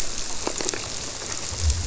{"label": "biophony", "recorder": "SoundTrap 300"}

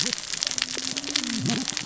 {"label": "biophony, cascading saw", "recorder": "SoundTrap 600 or HydroMoth"}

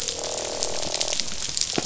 {"label": "biophony, croak", "recorder": "SoundTrap 500"}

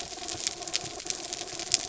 {"label": "anthrophony, mechanical", "recorder": "SoundTrap 300"}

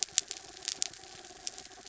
{"label": "anthrophony, mechanical", "recorder": "SoundTrap 300"}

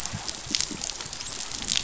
{"label": "biophony, dolphin", "recorder": "SoundTrap 500"}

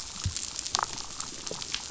{"label": "biophony, damselfish", "recorder": "SoundTrap 500"}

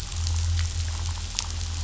{"label": "anthrophony, boat engine", "recorder": "SoundTrap 500"}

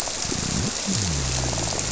{"label": "biophony", "recorder": "SoundTrap 300"}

